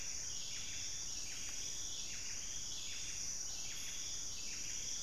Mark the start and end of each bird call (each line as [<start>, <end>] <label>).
[0.00, 5.02] Buff-breasted Wren (Cantorchilus leucotis)